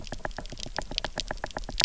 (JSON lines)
{"label": "biophony, knock", "recorder": "SoundTrap 300"}